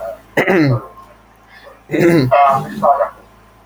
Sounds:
Throat clearing